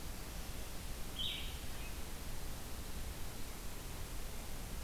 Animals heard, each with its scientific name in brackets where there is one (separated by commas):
Blue-headed Vireo (Vireo solitarius)